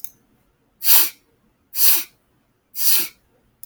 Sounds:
Sniff